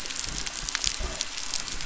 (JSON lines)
{"label": "anthrophony, boat engine", "recorder": "SoundTrap 300"}